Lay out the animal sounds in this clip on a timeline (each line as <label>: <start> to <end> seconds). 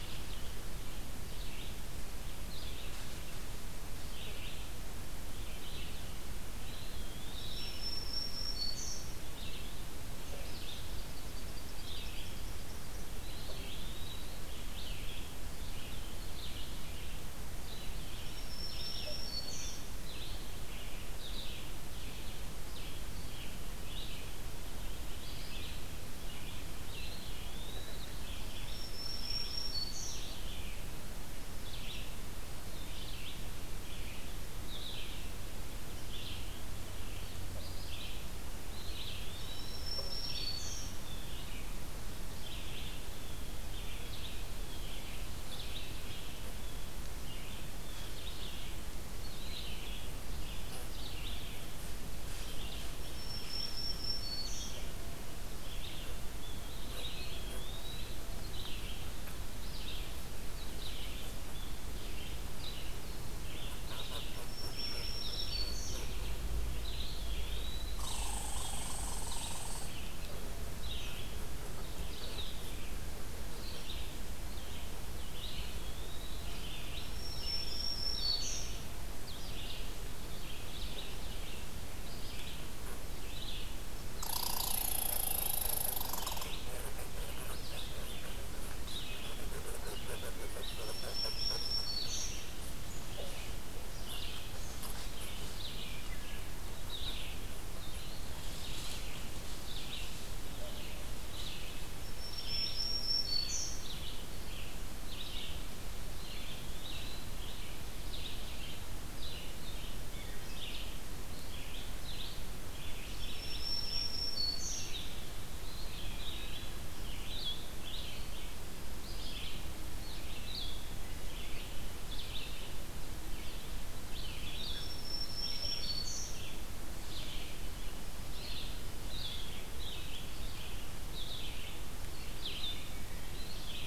Red-eyed Vireo (Vireo olivaceus): 0.0 to 49.9 seconds
Eastern Wood-Pewee (Contopus virens): 6.6 to 7.8 seconds
Black-throated Green Warbler (Setophaga virens): 7.4 to 9.2 seconds
Eastern Kingbird (Tyrannus tyrannus): 10.5 to 13.1 seconds
Eastern Wood-Pewee (Contopus virens): 13.2 to 14.4 seconds
Black-throated Green Warbler (Setophaga virens): 18.2 to 19.9 seconds
Eastern Wood-Pewee (Contopus virens): 26.7 to 28.2 seconds
Black-throated Green Warbler (Setophaga virens): 28.6 to 30.3 seconds
Eastern Wood-Pewee (Contopus virens): 38.6 to 39.9 seconds
Black-throated Green Warbler (Setophaga virens): 39.3 to 41.0 seconds
Blue Jay (Cyanocitta cristata): 40.4 to 41.5 seconds
Blue Jay (Cyanocitta cristata): 43.0 to 44.9 seconds
Blue Jay (Cyanocitta cristata): 46.5 to 48.2 seconds
Red-eyed Vireo (Vireo olivaceus): 50.3 to 133.9 seconds
Black-throated Green Warbler (Setophaga virens): 52.8 to 54.8 seconds
Eastern Wood-Pewee (Contopus virens): 56.6 to 58.3 seconds
Black-throated Green Warbler (Setophaga virens): 64.4 to 66.1 seconds
Eastern Wood-Pewee (Contopus virens): 66.6 to 68.1 seconds
Red Squirrel (Tamiasciurus hudsonicus): 68.0 to 69.9 seconds
Eastern Wood-Pewee (Contopus virens): 75.3 to 76.5 seconds
Black-throated Green Warbler (Setophaga virens): 77.0 to 78.8 seconds
Red Squirrel (Tamiasciurus hudsonicus): 84.2 to 86.5 seconds
Eastern Wood-Pewee (Contopus virens): 84.2 to 86.0 seconds
Black-throated Green Warbler (Setophaga virens): 90.5 to 92.4 seconds
Eastern Wood-Pewee (Contopus virens): 97.8 to 99.0 seconds
Black-throated Green Warbler (Setophaga virens): 101.9 to 103.9 seconds
Eastern Wood-Pewee (Contopus virens): 106.0 to 107.4 seconds
Wood Thrush (Hylocichla mustelina): 110.1 to 110.7 seconds
Black-throated Green Warbler (Setophaga virens): 113.1 to 115.0 seconds
Eastern Wood-Pewee (Contopus virens): 115.6 to 116.9 seconds
Blue-headed Vireo (Vireo solitarius): 117.2 to 133.9 seconds
Black-throated Green Warbler (Setophaga virens): 124.5 to 126.4 seconds
Eastern Wood-Pewee (Contopus virens): 133.1 to 133.9 seconds